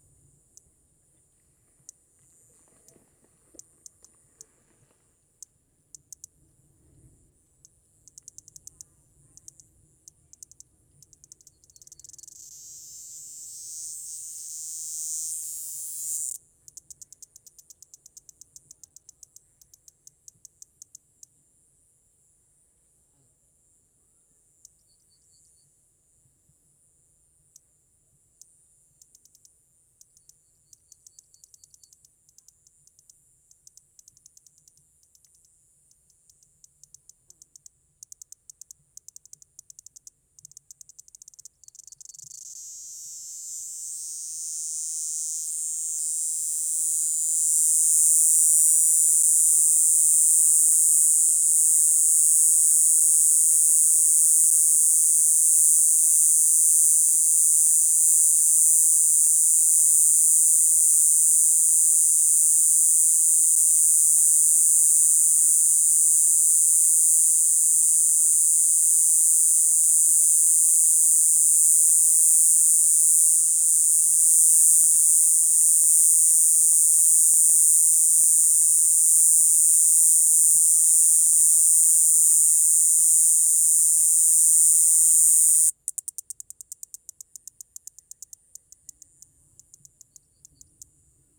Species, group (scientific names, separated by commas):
Diceroprocta eugraphica, Cicadidae